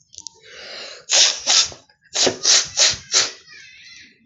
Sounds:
Sniff